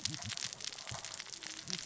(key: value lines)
label: biophony, cascading saw
recorder: SoundTrap 600 or HydroMoth